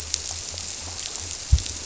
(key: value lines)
label: biophony
recorder: SoundTrap 300